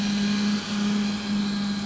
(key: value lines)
label: anthrophony, boat engine
recorder: SoundTrap 500